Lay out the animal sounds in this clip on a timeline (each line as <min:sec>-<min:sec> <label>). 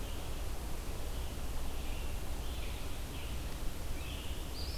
0:00.0-0:04.8 Red-eyed Vireo (Vireo olivaceus)
0:00.9-0:03.4 Scarlet Tanager (Piranga olivacea)